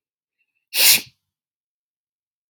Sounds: Sneeze